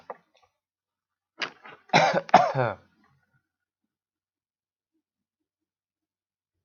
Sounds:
Cough